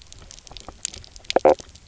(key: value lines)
label: biophony, knock croak
recorder: SoundTrap 300